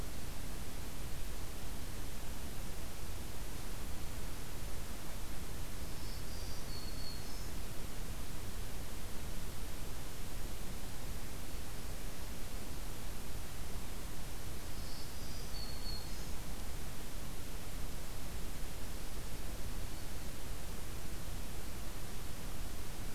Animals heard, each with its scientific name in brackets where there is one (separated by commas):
Black-throated Green Warbler (Setophaga virens)